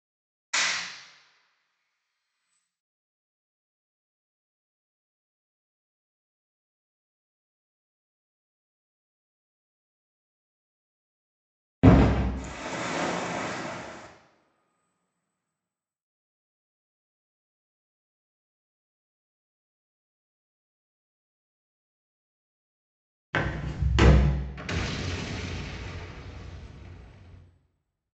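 At the start, someone claps. After that, about 12 seconds in, a boom is heard. Following that, at around 12 seconds, waves can be heard. Later, about 23 seconds in, someone walks. Afterwards, at around 25 seconds, you can hear a boom.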